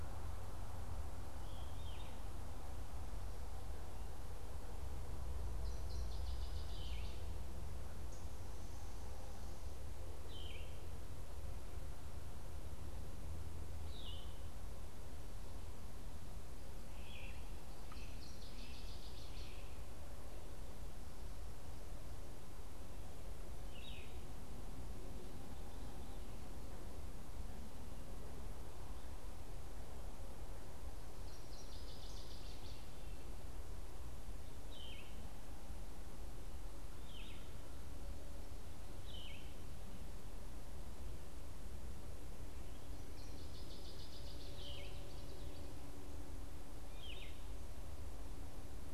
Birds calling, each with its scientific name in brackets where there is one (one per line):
Common Yellowthroat (Geothlypis trichas)
Veery (Catharus fuscescens)
Yellow-throated Vireo (Vireo flavifrons)
Great Crested Flycatcher (Myiarchus crinitus)
Northern Waterthrush (Parkesia noveboracensis)